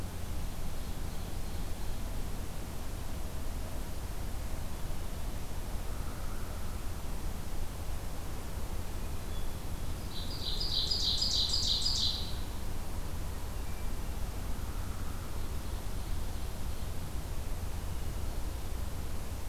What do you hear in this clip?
Ovenbird, Hairy Woodpecker, Hermit Thrush